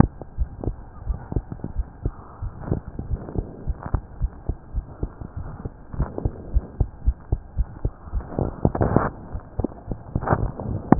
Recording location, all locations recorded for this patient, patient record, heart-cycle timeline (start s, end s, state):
aortic valve (AV)
aortic valve (AV)+pulmonary valve (PV)+tricuspid valve (TV)+mitral valve (MV)
#Age: Child
#Sex: Female
#Height: 103.0 cm
#Weight: 14.0 kg
#Pregnancy status: False
#Murmur: Present
#Murmur locations: mitral valve (MV)+pulmonary valve (PV)+tricuspid valve (TV)
#Most audible location: pulmonary valve (PV)
#Systolic murmur timing: Holosystolic
#Systolic murmur shape: Plateau
#Systolic murmur grading: I/VI
#Systolic murmur pitch: Low
#Systolic murmur quality: Blowing
#Diastolic murmur timing: nan
#Diastolic murmur shape: nan
#Diastolic murmur grading: nan
#Diastolic murmur pitch: nan
#Diastolic murmur quality: nan
#Outcome: Abnormal
#Campaign: 2015 screening campaign
0.00	1.72	unannotated
1.72	1.88	S1
1.88	2.04	systole
2.04	2.14	S2
2.14	2.36	diastole
2.36	2.52	S1
2.52	2.68	systole
2.68	2.82	S2
2.82	3.04	diastole
3.04	3.20	S1
3.20	3.36	systole
3.36	3.48	S2
3.48	3.64	diastole
3.64	3.78	S1
3.78	3.90	systole
3.90	4.02	S2
4.02	4.18	diastole
4.18	4.32	S1
4.32	4.46	systole
4.46	4.58	S2
4.58	4.70	diastole
4.70	4.86	S1
4.86	5.00	systole
5.00	5.16	S2
5.16	5.36	diastole
5.36	5.47	S1
5.47	5.63	systole
5.63	5.73	S2
5.73	5.97	diastole
5.97	6.10	S1
6.10	6.23	systole
6.23	6.34	S2
6.34	6.50	diastole
6.50	6.66	S1
6.66	6.76	systole
6.76	6.90	S2
6.90	7.04	diastole
7.04	7.18	S1
7.18	7.28	systole
7.28	7.40	S2
7.40	7.56	diastole
7.56	7.70	S1
7.70	7.82	systole
7.82	7.92	S2
7.92	8.12	diastole
8.12	8.26	S1
8.26	8.38	systole
8.38	8.54	S2
8.54	10.99	unannotated